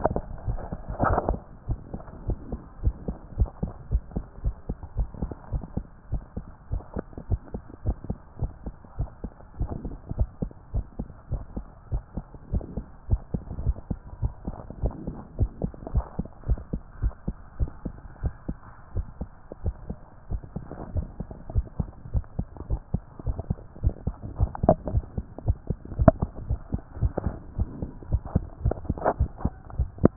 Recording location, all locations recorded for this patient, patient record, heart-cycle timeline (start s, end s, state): tricuspid valve (TV)
aortic valve (AV)+pulmonary valve (PV)+tricuspid valve (TV)+mitral valve (MV)
#Age: Child
#Sex: Male
#Height: 125.0 cm
#Weight: 25.4 kg
#Pregnancy status: False
#Murmur: Absent
#Murmur locations: nan
#Most audible location: nan
#Systolic murmur timing: nan
#Systolic murmur shape: nan
#Systolic murmur grading: nan
#Systolic murmur pitch: nan
#Systolic murmur quality: nan
#Diastolic murmur timing: nan
#Diastolic murmur shape: nan
#Diastolic murmur grading: nan
#Diastolic murmur pitch: nan
#Diastolic murmur quality: nan
#Outcome: Abnormal
#Campaign: 2014 screening campaign
0.00	1.52	unannotated
1.52	1.68	diastole
1.68	1.80	S1
1.80	1.92	systole
1.92	2.02	S2
2.02	2.26	diastole
2.26	2.40	S1
2.40	2.50	systole
2.50	2.60	S2
2.60	2.80	diastole
2.80	2.96	S1
2.96	3.06	systole
3.06	3.16	S2
3.16	3.34	diastole
3.34	3.50	S1
3.50	3.62	systole
3.62	3.72	S2
3.72	3.90	diastole
3.90	4.04	S1
4.04	4.14	systole
4.14	4.26	S2
4.26	4.44	diastole
4.44	4.56	S1
4.56	4.68	systole
4.68	4.78	S2
4.78	4.98	diastole
4.98	5.10	S1
5.10	5.22	systole
5.22	5.32	S2
5.32	5.52	diastole
5.52	5.64	S1
5.64	5.76	systole
5.76	5.84	S2
5.84	6.10	diastole
6.10	6.24	S1
6.24	6.36	systole
6.36	6.46	S2
6.46	6.72	diastole
6.72	6.84	S1
6.84	6.96	systole
6.96	7.04	S2
7.04	7.28	diastole
7.28	7.42	S1
7.42	7.54	systole
7.54	7.62	S2
7.62	7.84	diastole
7.84	7.98	S1
7.98	8.08	systole
8.08	8.20	S2
8.20	8.40	diastole
8.40	8.52	S1
8.52	8.66	systole
8.66	8.74	S2
8.74	8.98	diastole
8.98	9.10	S1
9.10	9.22	systole
9.22	9.30	S2
9.30	9.58	diastole
9.58	9.72	S1
9.72	9.84	systole
9.84	9.92	S2
9.92	10.12	diastole
10.12	10.30	S1
10.30	10.38	systole
10.38	10.50	S2
10.50	10.72	diastole
10.72	10.86	S1
10.86	11.00	systole
11.00	11.08	S2
11.08	11.32	diastole
11.32	11.46	S1
11.46	11.56	systole
11.56	11.66	S2
11.66	11.90	diastole
11.90	12.04	S1
12.04	12.16	systole
12.16	12.24	S2
12.24	12.50	diastole
12.50	12.64	S1
12.64	12.74	systole
12.74	12.86	S2
12.86	13.08	diastole
13.08	13.22	S1
13.22	13.30	systole
13.30	13.42	S2
13.42	13.60	diastole
13.60	13.76	S1
13.76	13.86	systole
13.86	13.98	S2
13.98	14.20	diastole
14.20	14.34	S1
14.34	14.46	systole
14.46	14.58	S2
14.58	14.80	diastole
14.80	14.94	S1
14.94	15.06	systole
15.06	15.14	S2
15.14	15.36	diastole
15.36	15.50	S1
15.50	15.60	systole
15.60	15.72	S2
15.72	15.92	diastole
15.92	16.06	S1
16.06	16.18	systole
16.18	16.26	S2
16.26	16.46	diastole
16.46	16.60	S1
16.60	16.72	systole
16.72	16.82	S2
16.82	17.00	diastole
17.00	17.14	S1
17.14	17.24	systole
17.24	17.36	S2
17.36	17.58	diastole
17.58	17.72	S1
17.72	17.86	systole
17.86	17.96	S2
17.96	18.22	diastole
18.22	18.36	S1
18.36	18.56	systole
18.56	18.66	S2
18.66	18.94	diastole
18.94	19.06	S1
19.06	19.22	systole
19.22	19.32	S2
19.32	19.60	diastole
19.60	19.74	S1
19.74	19.90	systole
19.90	20.02	S2
20.02	20.30	diastole
20.30	20.42	S1
20.42	20.54	systole
20.54	20.66	S2
20.66	20.92	diastole
20.92	21.06	S1
21.06	21.20	systole
21.20	21.28	S2
21.28	21.52	diastole
21.52	21.68	S1
21.68	21.80	systole
21.80	21.90	S2
21.90	22.12	diastole
22.12	22.24	S1
22.24	22.38	systole
22.38	22.46	S2
22.46	22.68	diastole
22.68	22.80	S1
22.80	22.90	systole
22.90	23.02	S2
23.02	23.26	diastole
23.26	23.38	S1
23.38	23.48	systole
23.48	23.58	S2
23.58	23.80	diastole
23.80	23.94	S1
23.94	24.04	systole
24.04	24.16	S2
24.16	24.36	diastole
24.36	24.52	S1
24.52	24.62	systole
24.62	24.76	S2
24.76	24.92	diastole
24.92	25.06	S1
25.06	25.16	systole
25.16	25.26	S2
25.26	25.44	diastole
25.44	25.60	S1
25.60	25.70	systole
25.70	25.78	S2
25.78	25.96	diastole
25.96	26.10	S1
26.10	26.20	systole
26.20	26.30	S2
26.30	26.48	diastole
26.48	26.60	S1
26.60	26.72	systole
26.72	26.82	S2
26.82	27.00	diastole
27.00	27.16	S1
27.16	27.24	systole
27.24	27.36	S2
27.36	27.58	diastole
27.58	27.70	S1
27.70	27.80	systole
27.80	27.90	S2
27.90	28.10	diastole
28.10	28.22	S1
28.22	28.34	systole
28.34	28.46	S2
28.46	28.62	diastole
28.62	28.78	S1
28.78	28.88	systole
28.88	28.98	S2
28.98	29.18	diastole
29.18	29.32	S1
29.32	29.42	systole
29.42	29.54	S2
29.54	29.76	diastole
29.76	29.90	S1
29.90	30.02	systole
30.02	30.12	S2
30.12	30.16	diastole